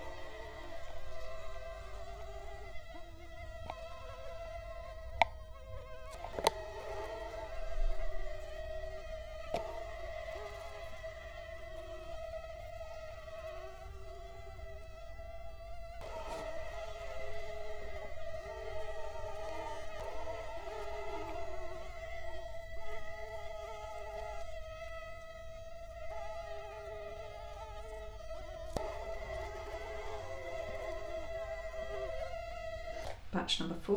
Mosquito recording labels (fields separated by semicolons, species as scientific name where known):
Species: Culex quinquefasciatus; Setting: cup